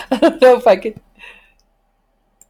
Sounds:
Laughter